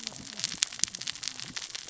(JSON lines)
{"label": "biophony, cascading saw", "recorder": "SoundTrap 600 or HydroMoth"}